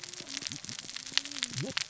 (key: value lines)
label: biophony, cascading saw
recorder: SoundTrap 600 or HydroMoth